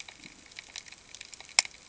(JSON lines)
{"label": "ambient", "recorder": "HydroMoth"}